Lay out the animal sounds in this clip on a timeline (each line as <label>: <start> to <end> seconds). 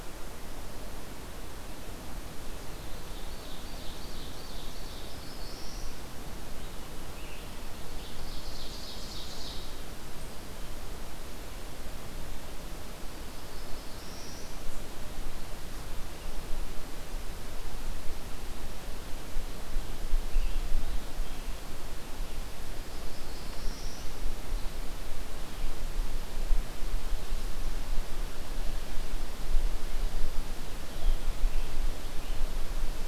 Ovenbird (Seiurus aurocapilla): 2.7 to 5.9 seconds
Black-throated Blue Warbler (Setophaga caerulescens): 4.8 to 6.0 seconds
Scarlet Tanager (Piranga olivacea): 6.5 to 8.2 seconds
Ovenbird (Seiurus aurocapilla): 8.0 to 9.8 seconds
Black-throated Blue Warbler (Setophaga caerulescens): 13.0 to 14.5 seconds
Scarlet Tanager (Piranga olivacea): 19.7 to 21.6 seconds
Black-throated Blue Warbler (Setophaga caerulescens): 22.7 to 24.2 seconds
Scarlet Tanager (Piranga olivacea): 30.7 to 32.5 seconds